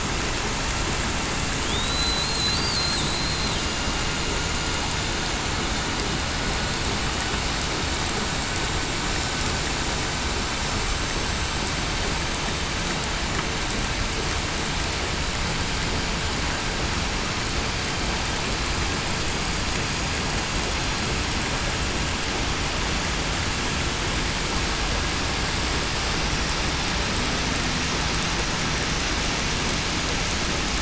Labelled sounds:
0.4	1.0	vessel noise, 6.7 to 6.8 kHz
1.7	2.3	killer whale, southern resident, 3.2 to 8.0 kHz
3.2	3.5	killer whale, southern resident, 7.9 to 8.0 kHz

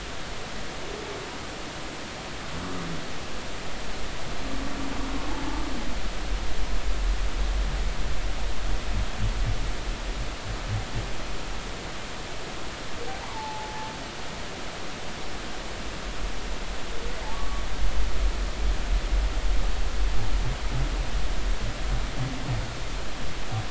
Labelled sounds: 5.3	5.6	humpback whale, 0.80 to 0.93 kHz
13.1	13.9	humpback whale, 0.80 to 1.2 kHz
17.3	17.6	humpback whale, 1.1 to 1.2 kHz

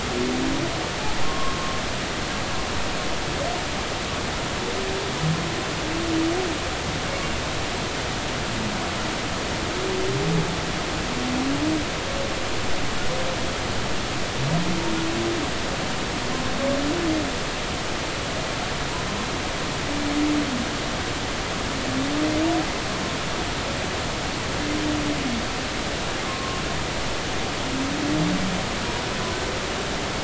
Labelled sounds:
1.2	1.6	humpback whale, 0.99 to 1.1 kHz
26.2	26.6	humpback whale, 1.0 to 1.1 kHz

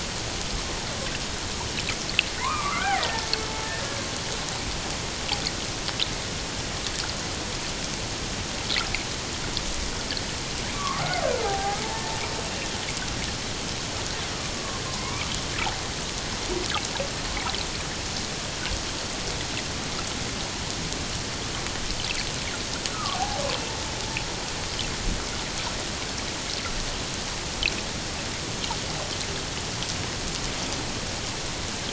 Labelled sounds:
2.4	3.3	killer whale, Bigg's (transient), 0.88 to 2.5 kHz
3.6	4.0	killer whale, Bigg's (transient), 1.6 to 1.8 kHz
10.7	11.8	killer whale, Bigg's (transient), 0.78 to 1.5 kHz
14.5	15.3	killer whale, Bigg's (transient), 0.94 to 2.5 kHz
22.9	23.7	killer whale, Bigg's (transient), 0.78 to 2.8 kHz

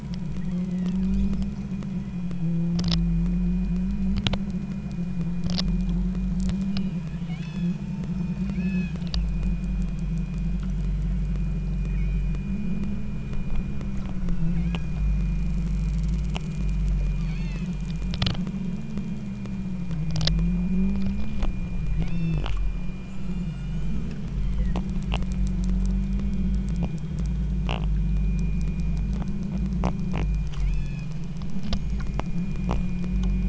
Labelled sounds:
0.4	1.0	killer whale, southern Alaska resident, 1.5 to 4.3 kHz
7.2	9.0	killer whale, southern Alaska resident, 1.3 to 8.0 kHz
10.8	11.3	killer whale, southern Alaska resident, 1.6 to 3.2 kHz
11.9	12.4	killer whale, southern Alaska resident, 1.9 to 6.5 kHz
14.6	15.0	killer whale, southern Alaska resident, 1.8 to 3.4 kHz
17.2	17.8	killer whale, southern Alaska resident, 1.5 to 6.5 kHz
22.0	22.5	killer whale, southern Alaska resident, 2.3 to 8.0 kHz
23.1	24.0	killer whale, southern Alaska resident, 2.5 to 8.0 kHz
24.3	24.9	killer whale, southern Alaska resident, 1.7 to 4.4 kHz
30.7	31.3	killer whale, southern Alaska resident, 1.5 to 6.7 kHz

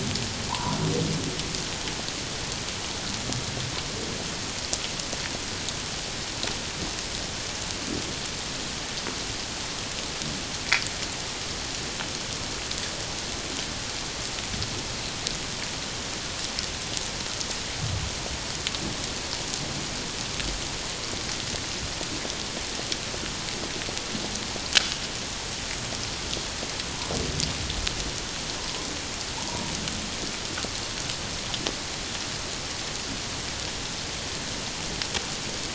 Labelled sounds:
0.5	0.8	humpback whale, 0.78 to 1.1 kHz
28.6	29.6	humpback whale, 0.81 to 1.1 kHz

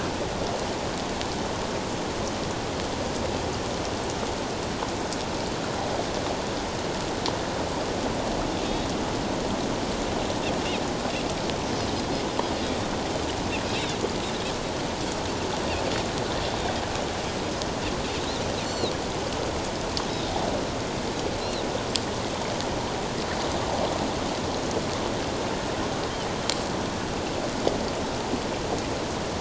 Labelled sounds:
13.7	14.0	Pacific white-sided dolphin, 3.4 to 4.1 kHz
18.6	18.9	Pacific white-sided dolphin, 3.7 to 4.5 kHz
20.1	20.3	Pacific white-sided dolphin, 3.6 to 3.9 kHz
21.4	21.7	Pacific white-sided dolphin, 3.7 to 4.3 kHz

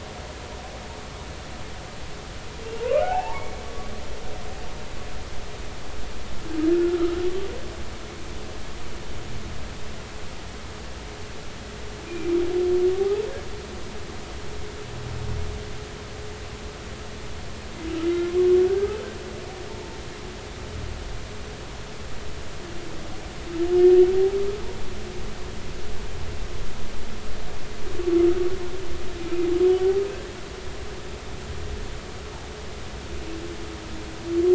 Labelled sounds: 2.8	3.6	humpback whale, 0.80 to 2.3 kHz
7.7	8.0	humpback whale, 1.3 to 1.5 kHz
18.1	18.4	humpback whale, 2.0 to 2.2 kHz
19.7	20.0	humpback whale, 0.83 to 1.1 kHz

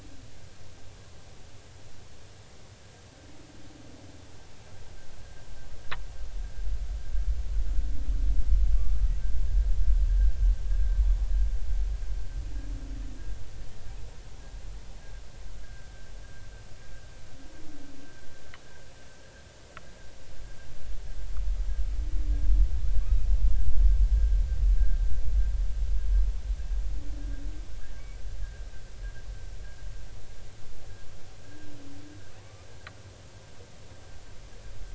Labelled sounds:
8.8	9.1	humpback whale, 1.1 to 1.3 kHz
15.6	15.9	humpback whale, 1.4 to 1.7 kHz
23.0	23.3	humpback whale, 2.3 to 2.6 kHz
31.4	31.7	humpback whale, 1.5 to 1.7 kHz
32.4	32.7	humpback whale, 0.93 to 1.3 kHz

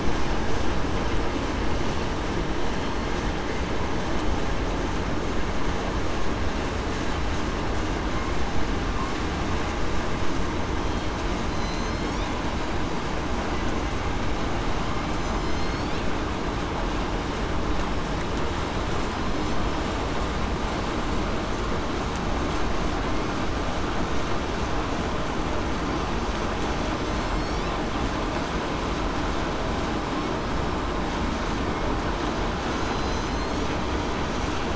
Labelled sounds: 10.8	11.1	killer whale, southern resident, 3.2 to 3.3 kHz
11.5	12.2	killer whale, southern resident, 4.0 to 4.5 kHz
15.3	15.7	killer whale, southern resident, 5.1 to 5.3 kHz
27.1	27.6	killer whale, southern resident, 4.1 to 5.7 kHz
32.8	33.6	killer whale, southern resident, 4.0 to 8.0 kHz

